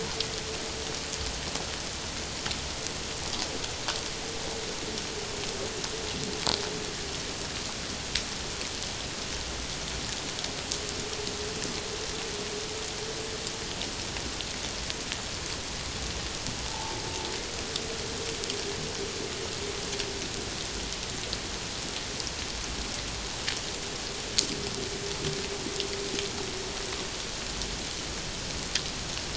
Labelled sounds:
16.6	17.0	humpback whale, 0.78 to 0.97 kHz

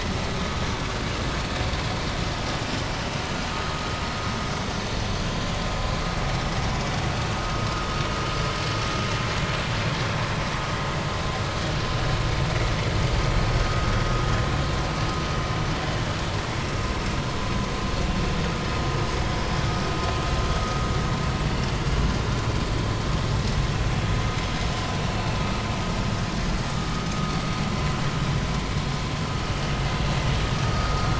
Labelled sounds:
26.7	27.0	vessel noise, 1.1 to 1.3 kHz

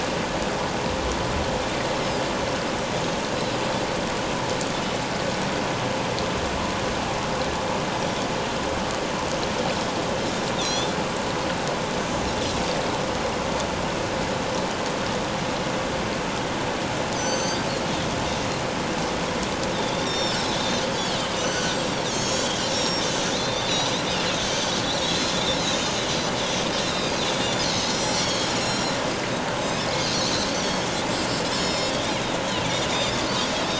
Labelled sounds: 8.0	8.3	Pacific white-sided dolphin, 3.3 to 3.5 kHz
10.6	10.9	Pacific white-sided dolphin, 3.2 to 6.2 kHz
17.1	17.6	Pacific white-sided dolphin, 4.4 to 7.7 kHz
19.7	21.8	Pacific white-sided dolphin, 1.4 to 7.6 kHz
22.0	23.9	Pacific white-sided dolphin, 3.1 to 7.9 kHz
25.0	26.4	Pacific white-sided dolphin, 3.4 to 6.0 kHz
26.8	29.0	Pacific white-sided dolphin, 3.2 to 7.9 kHz
30.6	31.9	Pacific white-sided dolphin, 3.2 to 7.1 kHz
32.4	33.2	Pacific white-sided dolphin, 3.3 to 4.3 kHz

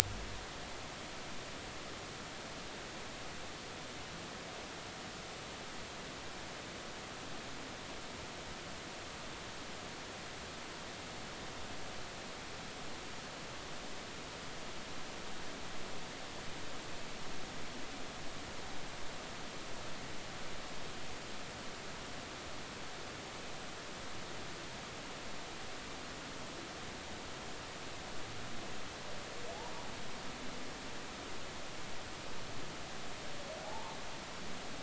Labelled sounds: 33.6	34.0	humpback whale, 0.80 to 1.1 kHz

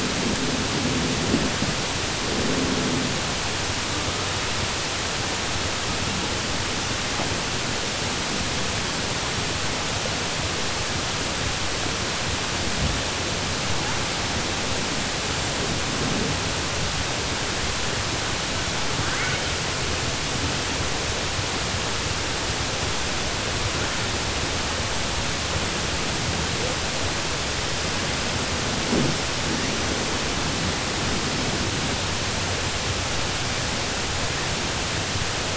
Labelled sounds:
19.0	19.4	killer whale, southern resident, 1.2 to 3.1 kHz

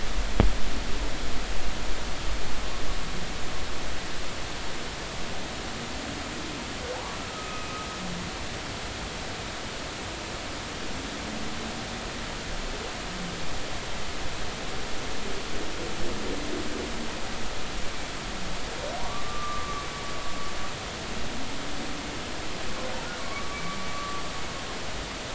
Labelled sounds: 7.2	7.7	humpback whale, 1.2 to 1.4 kHz
19.0	19.9	humpback whale, 0.90 to 1.2 kHz
23.2	24.2	humpback whale, 1.0 to 1.3 kHz

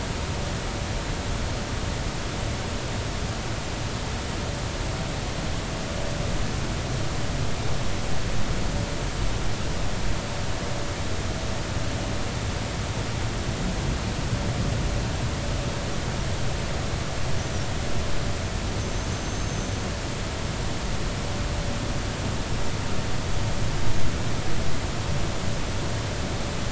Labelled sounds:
17.4	17.6	small unidentified odontocete, 5.6 to 6.2 kHz
18.8	19.8	small unidentified odontocete, 6.1 to 6.4 kHz

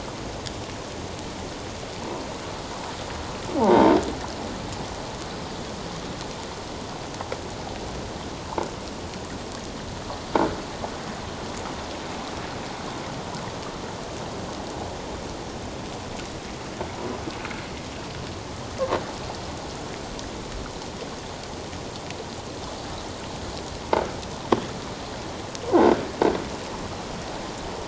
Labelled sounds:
3.6	3.9	croaking sound likely from a nearby submerged object, 0.78 to 1.1 kHz
25.7	26.0	croaking sound likely from a nearby submerged object, 1.4 to 1.7 kHz

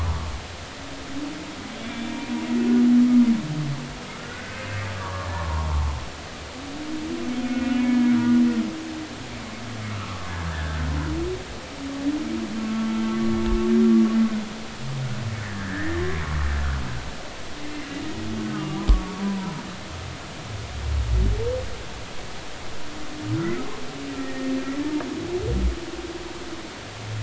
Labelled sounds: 4.1	5.9	humpback whale, 0.80 to 1.7 kHz
7.5	8.4	humpback whale, 1.3 to 2.7 kHz
9.9	10.8	humpback whale, 1.1 to 1.8 kHz
12.6	12.9	humpback whale, 1.1 to 1.2 kHz
15.4	16.0	humpback whale, 1.5 to 2.0 kHz
17.7	19.5	humpback whale, 0.90 to 2.8 kHz
24.2	24.5	humpback whale, 1.8 to 1.9 kHz

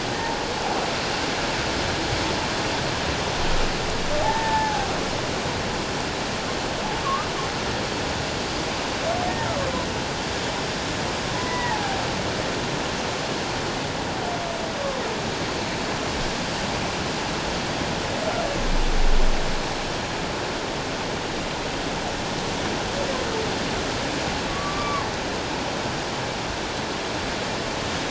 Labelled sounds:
4.2	4.9	humpback whale, 0.78 to 1.8 kHz
7.0	7.3	humpback whale, 1.0 to 1.3 kHz
11.3	12.0	humpback whale, 0.78 to 2.0 kHz
24.5	25.0	humpback whale, 1.0 to 1.2 kHz

